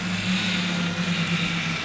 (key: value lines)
label: anthrophony, boat engine
recorder: SoundTrap 500